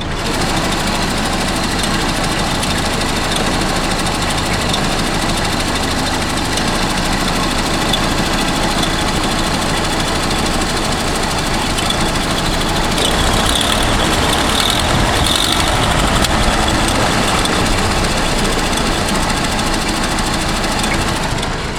Is the vehicle loud?
yes